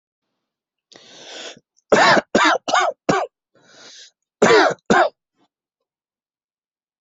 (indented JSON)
{
  "expert_labels": [
    {
      "quality": "good",
      "cough_type": "dry",
      "dyspnea": false,
      "wheezing": false,
      "stridor": false,
      "choking": false,
      "congestion": false,
      "nothing": true,
      "diagnosis": "lower respiratory tract infection",
      "severity": "unknown"
    }
  ],
  "age": 30,
  "gender": "male",
  "respiratory_condition": false,
  "fever_muscle_pain": false,
  "status": "symptomatic"
}